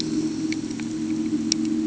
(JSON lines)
{"label": "anthrophony, boat engine", "recorder": "HydroMoth"}